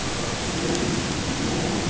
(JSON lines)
{"label": "ambient", "recorder": "HydroMoth"}